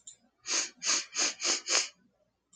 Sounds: Sniff